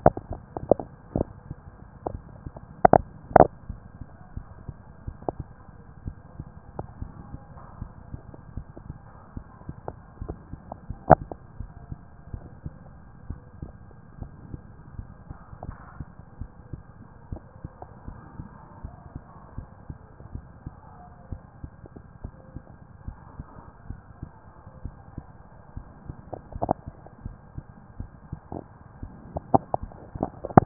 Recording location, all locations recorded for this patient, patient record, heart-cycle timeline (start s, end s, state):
mitral valve (MV)
pulmonary valve (PV)+mitral valve (MV)
#Age: Child
#Sex: Male
#Height: 143.0 cm
#Weight: 59.1 kg
#Pregnancy status: False
#Murmur: Absent
#Murmur locations: nan
#Most audible location: nan
#Systolic murmur timing: nan
#Systolic murmur shape: nan
#Systolic murmur grading: nan
#Systolic murmur pitch: nan
#Systolic murmur quality: nan
#Diastolic murmur timing: nan
#Diastolic murmur shape: nan
#Diastolic murmur grading: nan
#Diastolic murmur pitch: nan
#Diastolic murmur quality: nan
#Outcome: Normal
#Campaign: 2015 screening campaign
0.00	13.24	unannotated
13.24	13.40	S1
13.40	13.59	systole
13.59	13.76	S2
13.76	14.18	diastole
14.18	14.32	S1
14.32	14.50	systole
14.50	14.60	S2
14.60	14.92	diastole
14.92	15.08	S1
15.08	15.26	systole
15.26	15.36	S2
15.36	15.62	diastole
15.62	15.76	S1
15.76	15.96	systole
15.96	16.06	S2
16.06	16.38	diastole
16.38	16.50	S1
16.50	16.72	systole
16.72	16.82	S2
16.82	17.24	diastole
17.24	17.40	S1
17.40	17.60	systole
17.60	17.70	S2
17.70	18.06	diastole
18.06	18.20	S1
18.20	18.38	systole
18.38	18.50	S2
18.50	18.78	diastole
18.78	18.94	S1
18.94	19.14	systole
19.14	19.22	S2
19.22	19.54	diastole
19.54	19.68	S1
19.68	19.87	systole
19.87	19.96	S2
19.96	20.32	diastole
20.32	20.46	S1
20.46	20.63	systole
20.63	20.75	S2
20.75	21.26	diastole
21.26	21.40	S1
21.40	21.61	systole
21.61	21.74	S2
21.74	22.20	diastole
22.20	22.34	S1
22.34	22.53	systole
22.53	22.66	S2
22.66	23.04	diastole
23.04	23.18	S1
23.18	23.36	systole
23.36	23.46	S2
23.46	23.86	diastole
23.86	24.00	S1
24.00	24.19	systole
24.19	24.32	S2
24.32	24.81	diastole
24.81	24.92	S1
24.92	25.13	systole
25.13	25.25	S2
25.25	25.73	diastole
25.73	25.86	S1
25.86	26.06	systole
26.06	26.18	S2
26.18	30.66	unannotated